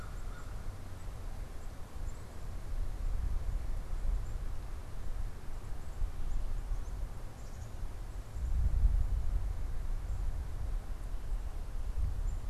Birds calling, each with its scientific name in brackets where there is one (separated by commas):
Black-capped Chickadee (Poecile atricapillus), American Crow (Corvus brachyrhynchos)